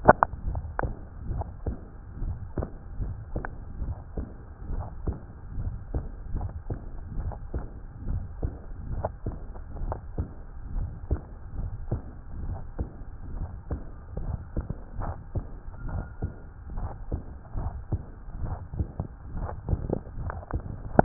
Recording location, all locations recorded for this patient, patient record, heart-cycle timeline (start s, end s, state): mitral valve (MV)
aortic valve (AV)+pulmonary valve (PV)+tricuspid valve (TV)+mitral valve (MV)
#Age: Adolescent
#Sex: Male
#Height: 162.0 cm
#Weight: 47.4 kg
#Pregnancy status: False
#Murmur: Present
#Murmur locations: aortic valve (AV)+mitral valve (MV)+pulmonary valve (PV)+tricuspid valve (TV)
#Most audible location: mitral valve (MV)
#Systolic murmur timing: Early-systolic
#Systolic murmur shape: Decrescendo
#Systolic murmur grading: II/VI
#Systolic murmur pitch: Medium
#Systolic murmur quality: Harsh
#Diastolic murmur timing: Early-diastolic
#Diastolic murmur shape: Decrescendo
#Diastolic murmur grading: II/IV
#Diastolic murmur pitch: Medium
#Diastolic murmur quality: Blowing
#Outcome: Abnormal
#Campaign: 2014 screening campaign
0.00	0.04	systole
0.04	0.12	S2
0.12	0.46	diastole
0.46	0.62	S1
0.62	0.82	systole
0.82	0.94	S2
0.94	1.28	diastole
1.28	1.44	S1
1.44	1.66	systole
1.66	1.76	S2
1.76	2.22	diastole
2.22	2.36	S1
2.36	2.56	systole
2.56	2.66	S2
2.66	3.00	diastole
3.00	3.14	S1
3.14	3.34	systole
3.34	3.44	S2
3.44	3.80	diastole
3.80	3.96	S1
3.96	4.16	systole
4.16	4.26	S2
4.26	4.70	diastole
4.70	4.84	S1
4.84	5.06	systole
5.06	5.16	S2
5.16	5.58	diastole
5.58	5.74	S1
5.74	5.94	systole
5.94	6.04	S2
6.04	6.36	diastole
6.36	6.50	S1
6.50	6.68	systole
6.68	6.78	S2
6.78	7.16	diastole
7.16	7.32	S1
7.32	7.54	systole
7.54	7.64	S2
7.64	8.08	diastole
8.08	8.24	S1
8.24	8.42	systole
8.42	8.52	S2
8.52	8.92	diastole
8.92	9.06	S1
9.06	9.26	systole
9.26	9.36	S2
9.36	9.82	diastole
9.82	9.96	S1
9.96	10.18	systole
10.18	10.28	S2
10.28	10.74	diastole
10.74	10.90	S1
10.90	11.10	systole
11.10	11.20	S2
11.20	11.58	diastole
11.58	11.72	S1
11.72	11.90	systole
11.90	12.00	S2
12.00	12.44	diastole
12.44	12.58	S1
12.58	12.78	systole
12.78	12.88	S2
12.88	13.36	diastole
13.36	13.48	S1
13.48	13.70	systole
13.70	13.80	S2
13.80	14.24	diastole
14.24	14.38	S1
14.38	14.56	systole
14.56	14.66	S2
14.66	15.02	diastole
15.02	15.14	S1
15.14	15.34	systole
15.34	15.44	S2
15.44	15.90	diastole
15.90	16.04	S1
16.04	16.22	systole
16.22	16.32	S2
16.32	16.76	diastole
16.76	16.90	S1
16.90	17.10	systole
17.10	17.22	S2
17.22	17.58	diastole
17.58	17.72	S1
17.72	17.90	systole
17.90	18.00	S2
18.00	18.42	diastole
18.42	18.56	S1
18.56	18.76	systole
18.76	18.88	S2
18.88	19.36	diastole
19.36	19.50	S1
19.50	19.68	systole
19.68	19.80	S2
19.80	20.22	diastole
20.22	20.34	S1
20.34	20.54	systole
20.54	20.62	S2
20.62	20.98	diastole
20.98	21.04	S1